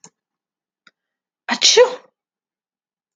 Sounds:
Sneeze